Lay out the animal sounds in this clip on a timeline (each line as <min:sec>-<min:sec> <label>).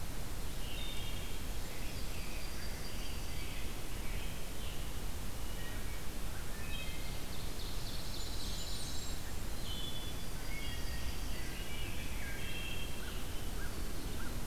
0:00.4-0:01.5 Wood Thrush (Hylocichla mustelina)
0:01.4-0:03.5 Yellow-rumped Warbler (Setophaga coronata)
0:01.5-0:04.9 Scarlet Tanager (Piranga olivacea)
0:05.3-0:06.0 Wood Thrush (Hylocichla mustelina)
0:06.4-0:07.2 Wood Thrush (Hylocichla mustelina)
0:06.7-0:08.8 Ovenbird (Seiurus aurocapilla)
0:07.5-0:09.3 Pine Warbler (Setophaga pinus)
0:07.8-0:09.5 Blackburnian Warbler (Setophaga fusca)
0:09.2-0:13.0 Wood Thrush (Hylocichla mustelina)
0:09.9-0:11.7 Yellow-rumped Warbler (Setophaga coronata)
0:12.8-0:14.5 American Crow (Corvus brachyrhynchos)